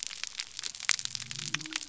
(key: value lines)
label: biophony
recorder: SoundTrap 300